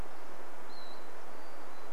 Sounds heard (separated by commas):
unidentified sound